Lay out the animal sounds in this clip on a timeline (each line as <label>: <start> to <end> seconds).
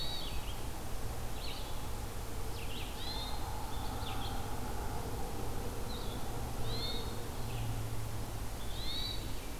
Hermit Thrush (Catharus guttatus): 0.0 to 0.6 seconds
Red-eyed Vireo (Vireo olivaceus): 0.0 to 9.6 seconds
Hermit Thrush (Catharus guttatus): 2.7 to 3.7 seconds
Hermit Thrush (Catharus guttatus): 6.5 to 7.4 seconds
Hermit Thrush (Catharus guttatus): 8.3 to 9.6 seconds